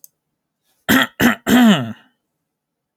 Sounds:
Cough